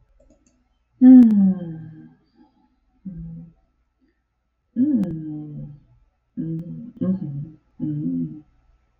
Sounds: Sigh